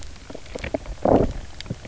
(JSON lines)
{"label": "biophony, low growl", "recorder": "SoundTrap 300"}